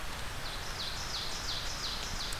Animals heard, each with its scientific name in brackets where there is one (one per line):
Ovenbird (Seiurus aurocapilla)